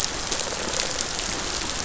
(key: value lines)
label: biophony, rattle response
recorder: SoundTrap 500